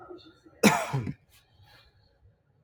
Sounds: Cough